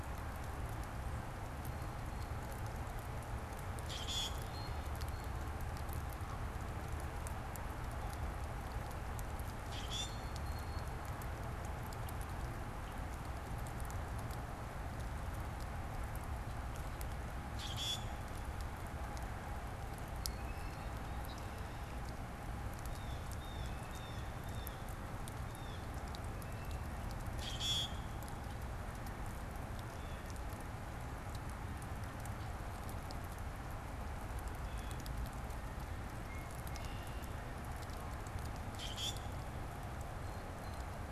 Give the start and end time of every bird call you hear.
[3.75, 4.45] Common Grackle (Quiscalus quiscula)
[9.55, 10.25] Common Grackle (Quiscalus quiscula)
[17.45, 18.25] Common Grackle (Quiscalus quiscula)
[20.15, 21.05] Blue Jay (Cyanocitta cristata)
[21.15, 22.25] Red-winged Blackbird (Agelaius phoeniceus)
[22.65, 24.95] Blue Jay (Cyanocitta cristata)
[27.25, 28.25] Common Grackle (Quiscalus quiscula)
[29.75, 30.55] Blue Jay (Cyanocitta cristata)
[34.55, 35.25] Blue Jay (Cyanocitta cristata)
[36.55, 37.45] Red-winged Blackbird (Agelaius phoeniceus)
[38.55, 39.35] Common Grackle (Quiscalus quiscula)

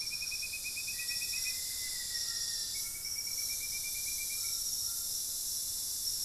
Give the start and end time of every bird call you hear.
[0.00, 3.95] Thrush-like Wren (Campylorhynchus turdinus)
[0.00, 6.25] White-throated Toucan (Ramphastos tucanus)
[0.75, 2.75] Black-faced Antthrush (Formicarius analis)

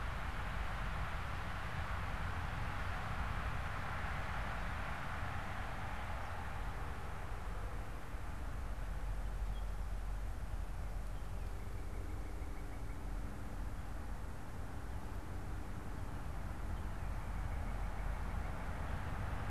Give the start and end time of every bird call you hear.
[10.88, 18.88] Northern Cardinal (Cardinalis cardinalis)

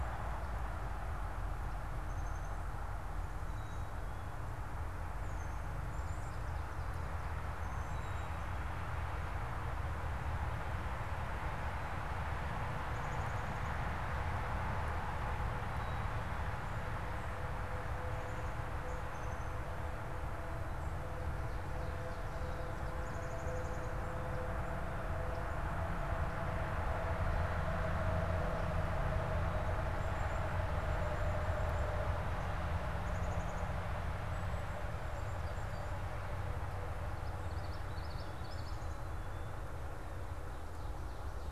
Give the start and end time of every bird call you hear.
[1.90, 2.70] Black-capped Chickadee (Poecile atricapillus)
[3.30, 4.00] unidentified bird
[5.30, 5.60] unidentified bird
[5.90, 8.80] Black-capped Chickadee (Poecile atricapillus)
[12.80, 14.00] Black-capped Chickadee (Poecile atricapillus)
[15.70, 16.70] Black-capped Chickadee (Poecile atricapillus)
[19.00, 23.50] Black-capped Chickadee (Poecile atricapillus)
[29.40, 34.00] Black-capped Chickadee (Poecile atricapillus)
[34.30, 35.90] Black-capped Chickadee (Poecile atricapillus)
[35.40, 36.00] unidentified bird
[37.40, 38.90] Common Yellowthroat (Geothlypis trichas)
[39.00, 39.70] Black-capped Chickadee (Poecile atricapillus)

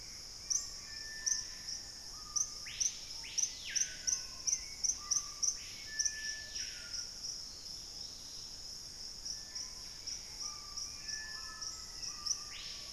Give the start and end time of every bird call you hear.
[0.00, 1.21] Bright-rumped Attila (Attila spadiceus)
[0.00, 1.51] Gray Antbird (Cercomacra cinerascens)
[0.00, 2.51] Black-faced Antthrush (Formicarius analis)
[0.00, 12.92] Screaming Piha (Lipaugus vociferans)
[3.71, 6.61] Black-capped Becard (Pachyramphus marginatus)
[5.11, 6.51] Hauxwell's Thrush (Turdus hauxwelli)
[7.61, 8.81] Dusky-capped Greenlet (Pachysylvia hypoxantha)
[8.81, 11.41] Gray Antbird (Cercomacra cinerascens)
[9.11, 10.71] Buff-breasted Wren (Cantorchilus leucotis)
[9.11, 10.81] Bright-rumped Attila (Attila spadiceus)
[10.81, 12.71] Black-capped Becard (Pachyramphus marginatus)
[10.81, 12.92] Black-faced Antthrush (Formicarius analis)

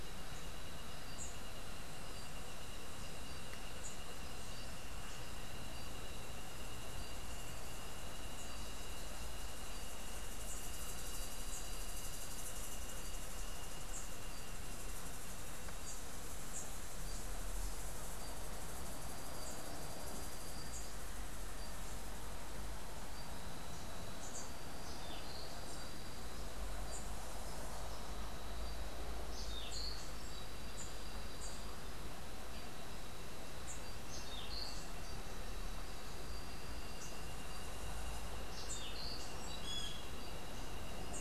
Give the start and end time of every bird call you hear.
[0.00, 1.67] Rufous-capped Warbler (Basileuterus rufifrons)
[29.37, 30.17] Orange-billed Nightingale-Thrush (Catharus aurantiirostris)
[34.17, 34.87] Orange-billed Nightingale-Thrush (Catharus aurantiirostris)
[38.47, 39.27] Orange-billed Nightingale-Thrush (Catharus aurantiirostris)
[39.57, 40.07] Great Kiskadee (Pitangus sulphuratus)

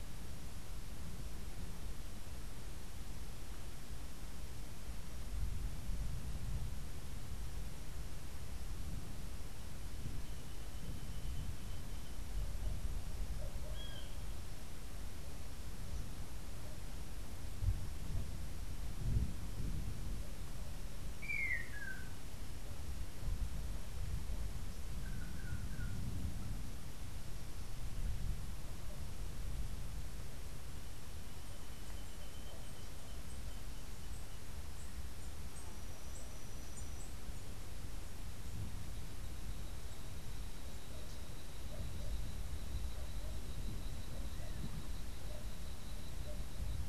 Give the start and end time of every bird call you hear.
[13.68, 14.38] Great Kiskadee (Pitangus sulphuratus)
[20.98, 22.28] Long-tailed Manakin (Chiroxiphia linearis)
[24.98, 25.98] Long-tailed Manakin (Chiroxiphia linearis)

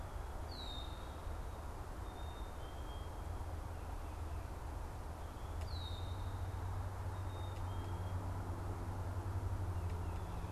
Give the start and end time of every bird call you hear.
[0.36, 6.26] Red-winged Blackbird (Agelaius phoeniceus)
[2.16, 8.36] Black-capped Chickadee (Poecile atricapillus)

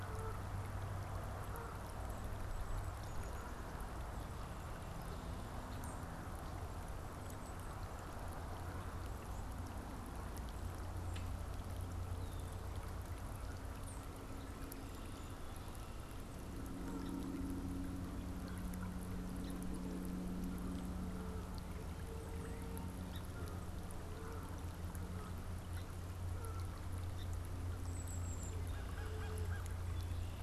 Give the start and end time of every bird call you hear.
[0.00, 1.98] Canada Goose (Branta canadensis)
[16.27, 30.43] Canada Goose (Branta canadensis)
[27.77, 28.68] Golden-crowned Kinglet (Regulus satrapa)
[28.57, 29.77] American Crow (Corvus brachyrhynchos)

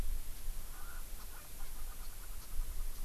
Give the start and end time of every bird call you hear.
[0.68, 2.98] Erckel's Francolin (Pternistis erckelii)
[2.28, 2.48] Japanese Bush Warbler (Horornis diphone)

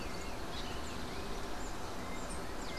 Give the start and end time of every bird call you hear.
[0.00, 0.60] unidentified bird
[0.00, 2.78] Rufous-collared Sparrow (Zonotrichia capensis)

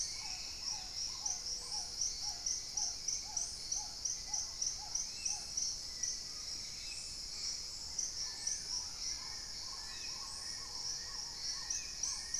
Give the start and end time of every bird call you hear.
[0.00, 12.39] Black-tailed Trogon (Trogon melanurus)
[0.00, 12.39] Hauxwell's Thrush (Turdus hauxwelli)
[0.00, 12.39] Paradise Tanager (Tangara chilensis)
[1.11, 2.21] Gray-fronted Dove (Leptotila rufaxilla)
[5.01, 12.39] Spot-winged Antshrike (Pygiptila stellaris)
[8.11, 12.39] Long-billed Woodcreeper (Nasica longirostris)
[8.51, 9.71] Black Caracara (Daptrius ater)
[10.41, 11.51] Gray-fronted Dove (Leptotila rufaxilla)

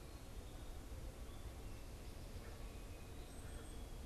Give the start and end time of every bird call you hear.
[3.11, 3.91] unidentified bird

